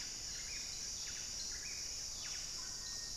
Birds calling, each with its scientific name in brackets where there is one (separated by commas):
Cinereous Tinamou (Crypturellus cinereus), Buff-breasted Wren (Cantorchilus leucotis), Mealy Parrot (Amazona farinosa)